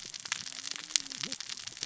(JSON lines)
{"label": "biophony, cascading saw", "recorder": "SoundTrap 600 or HydroMoth"}